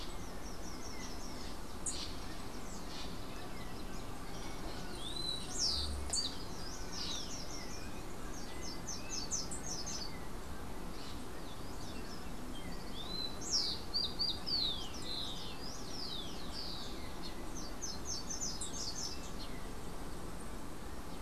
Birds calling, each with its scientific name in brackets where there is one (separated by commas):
Rufous-collared Sparrow (Zonotrichia capensis), Bronze-winged Parrot (Pionus chalcopterus), Yellow-faced Grassquit (Tiaris olivaceus), Slate-throated Redstart (Myioborus miniatus)